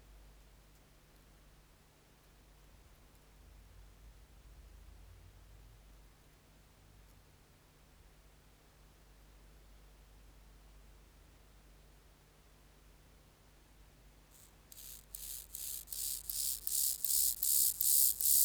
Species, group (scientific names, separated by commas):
Chorthippus mollis, Orthoptera